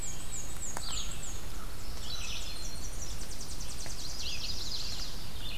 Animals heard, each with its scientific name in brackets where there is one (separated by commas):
Red-eyed Vireo (Vireo olivaceus), Chestnut-sided Warbler (Setophaga pensylvanica), Black-and-white Warbler (Mniotilta varia), Tennessee Warbler (Leiothlypis peregrina), Yellow-rumped Warbler (Setophaga coronata)